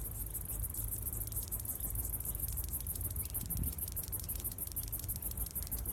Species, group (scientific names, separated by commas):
Clinopsalta autumna, Cicadidae